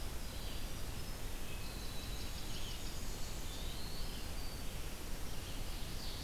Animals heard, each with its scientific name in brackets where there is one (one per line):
Ovenbird (Seiurus aurocapilla)
Winter Wren (Troglodytes hiemalis)
Eastern Wood-Pewee (Contopus virens)
Blackburnian Warbler (Setophaga fusca)
Red-eyed Vireo (Vireo olivaceus)